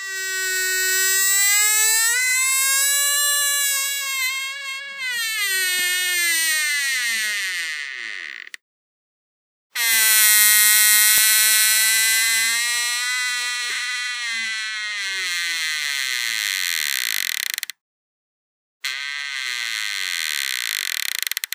Is this a voice?
no